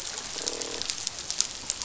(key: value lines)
label: biophony, croak
recorder: SoundTrap 500